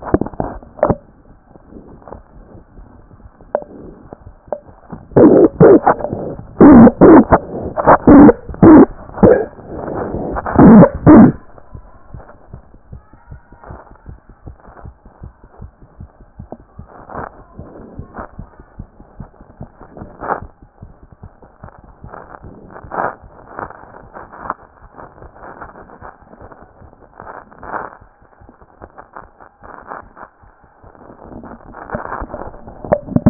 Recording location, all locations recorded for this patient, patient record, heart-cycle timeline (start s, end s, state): mitral valve (MV)
aortic valve (AV)+pulmonary valve (PV)+tricuspid valve (TV)+mitral valve (MV)
#Age: Child
#Sex: Female
#Height: 126.0 cm
#Weight: 29.5 kg
#Pregnancy status: False
#Murmur: Absent
#Murmur locations: nan
#Most audible location: nan
#Systolic murmur timing: nan
#Systolic murmur shape: nan
#Systolic murmur grading: nan
#Systolic murmur pitch: nan
#Systolic murmur quality: nan
#Diastolic murmur timing: nan
#Diastolic murmur shape: nan
#Diastolic murmur grading: nan
#Diastolic murmur pitch: nan
#Diastolic murmur quality: nan
#Outcome: Abnormal
#Campaign: 2014 screening campaign
0.00	12.53	unannotated
12.53	12.62	S1
12.62	12.72	systole
12.72	12.78	S2
12.78	12.92	diastole
12.92	13.02	S1
13.02	13.10	systole
13.10	13.16	S2
13.16	13.30	diastole
13.30	13.40	S1
13.40	13.48	systole
13.48	13.56	S2
13.56	13.70	diastole
13.70	13.80	S1
13.80	13.86	systole
13.86	13.94	S2
13.94	14.08	diastole
14.08	14.18	S1
14.18	14.28	systole
14.28	14.34	S2
14.34	14.46	diastole
14.46	14.56	S1
14.56	14.64	systole
14.64	14.72	S2
14.72	14.84	diastole
14.84	14.94	S1
14.94	15.02	systole
15.02	15.10	S2
15.10	15.22	diastole
15.22	15.32	S1
15.32	15.40	systole
15.40	15.48	S2
15.48	15.62	diastole
15.62	15.72	S1
15.72	15.82	systole
15.82	15.88	S2
15.88	16.00	diastole
16.00	16.10	S1
16.10	16.20	systole
16.20	16.26	S2
16.26	16.40	diastole
16.40	33.30	unannotated